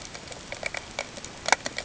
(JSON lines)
{"label": "ambient", "recorder": "HydroMoth"}